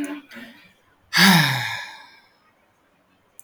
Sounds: Sigh